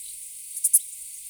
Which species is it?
Pholidoptera fallax